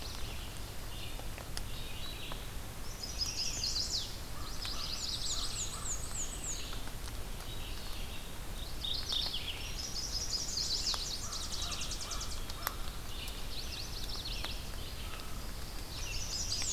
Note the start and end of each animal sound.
0.0s-8.1s: Red-eyed Vireo (Vireo olivaceus)
2.5s-4.2s: Chestnut-sided Warbler (Setophaga pensylvanica)
4.1s-6.1s: American Crow (Corvus brachyrhynchos)
4.4s-5.7s: Yellow-rumped Warbler (Setophaga coronata)
4.6s-7.0s: Black-and-white Warbler (Mniotilta varia)
8.4s-9.6s: Mourning Warbler (Geothlypis philadelphia)
9.1s-16.7s: Red-eyed Vireo (Vireo olivaceus)
9.5s-11.2s: Chestnut-sided Warbler (Setophaga pensylvanica)
10.4s-12.6s: Tennessee Warbler (Leiothlypis peregrina)
11.1s-12.9s: American Crow (Corvus brachyrhynchos)
13.4s-15.1s: Yellow-rumped Warbler (Setophaga coronata)
16.0s-16.7s: Chestnut-sided Warbler (Setophaga pensylvanica)
16.1s-16.7s: Black-and-white Warbler (Mniotilta varia)

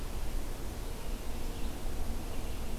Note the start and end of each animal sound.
0.0s-2.8s: Red-eyed Vireo (Vireo olivaceus)

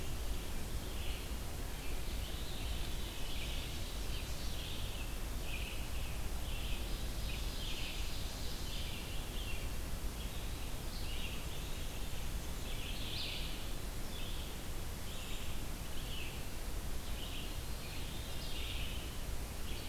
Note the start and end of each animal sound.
0.0s-19.9s: Red-eyed Vireo (Vireo olivaceus)
2.1s-3.5s: Veery (Catharus fuscescens)
2.9s-4.8s: Ovenbird (Seiurus aurocapilla)
6.5s-9.0s: Ovenbird (Seiurus aurocapilla)
17.6s-19.0s: Veery (Catharus fuscescens)

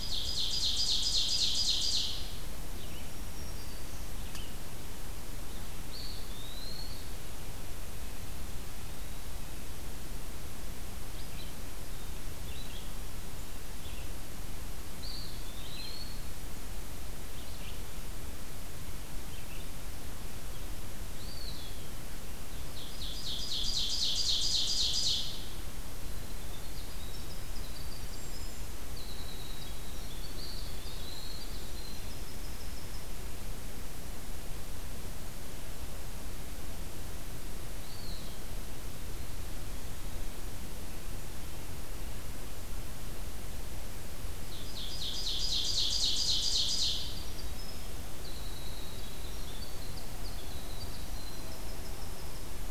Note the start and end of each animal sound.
0.0s-2.4s: Ovenbird (Seiurus aurocapilla)
0.0s-19.8s: Red-eyed Vireo (Vireo olivaceus)
2.7s-4.1s: Black-throated Green Warbler (Setophaga virens)
5.6s-7.2s: Eastern Wood-Pewee (Contopus virens)
14.6s-16.4s: Eastern Wood-Pewee (Contopus virens)
21.1s-21.9s: Eastern Wood-Pewee (Contopus virens)
22.4s-25.7s: Ovenbird (Seiurus aurocapilla)
25.8s-33.3s: Winter Wren (Troglodytes hiemalis)
30.3s-31.5s: Eastern Wood-Pewee (Contopus virens)
37.6s-38.6s: Eastern Wood-Pewee (Contopus virens)
44.3s-47.5s: Ovenbird (Seiurus aurocapilla)
46.7s-52.7s: Winter Wren (Troglodytes hiemalis)

